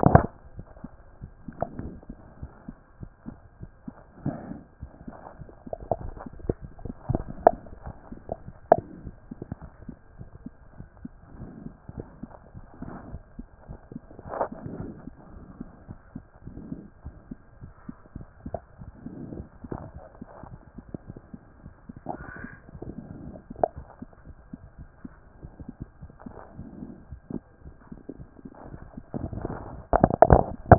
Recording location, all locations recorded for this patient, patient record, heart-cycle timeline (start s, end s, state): aortic valve (AV)
aortic valve (AV)+pulmonary valve (PV)+tricuspid valve (TV)+mitral valve (MV)
#Age: Child
#Sex: Female
#Height: 118.0 cm
#Weight: 25.4 kg
#Pregnancy status: False
#Murmur: Absent
#Murmur locations: nan
#Most audible location: nan
#Systolic murmur timing: nan
#Systolic murmur shape: nan
#Systolic murmur grading: nan
#Systolic murmur pitch: nan
#Systolic murmur quality: nan
#Diastolic murmur timing: nan
#Diastolic murmur shape: nan
#Diastolic murmur grading: nan
#Diastolic murmur pitch: nan
#Diastolic murmur quality: nan
#Outcome: Normal
#Campaign: 2014 screening campaign
0.00	0.37	unannotated
0.37	0.56	diastole
0.56	0.63	S1
0.63	0.84	systole
0.84	0.90	S2
0.90	1.22	diastole
1.22	1.29	S1
1.29	1.46	systole
1.46	1.54	S2
1.54	1.80	diastole
1.80	1.90	S1
1.90	2.08	systole
2.08	2.18	S2
2.18	2.40	diastole
2.40	2.49	S1
2.49	2.66	systole
2.66	2.76	S2
2.76	3.00	diastole
3.00	3.10	S1
3.10	3.26	systole
3.26	3.35	S2
3.35	3.60	diastole
3.60	3.70	S1
3.70	3.86	systole
3.86	3.94	S2
3.94	4.24	diastole
4.24	4.35	S1
4.35	4.52	systole
4.52	4.59	S2
4.59	4.82	diastole
4.82	4.90	S1
4.90	5.06	systole
5.06	5.16	S2
5.16	5.40	diastole
5.40	30.78	unannotated